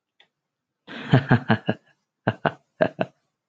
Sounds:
Laughter